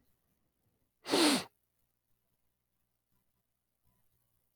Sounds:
Sniff